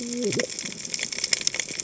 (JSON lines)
{"label": "biophony, cascading saw", "recorder": "HydroMoth"}